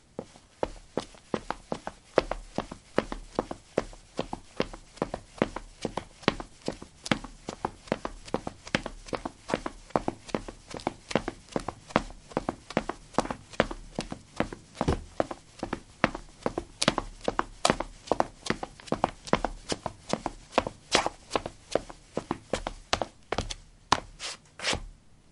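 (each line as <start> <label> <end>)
0.0 Footsteps of a person walking. 25.2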